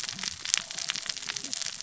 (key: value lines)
label: biophony, cascading saw
recorder: SoundTrap 600 or HydroMoth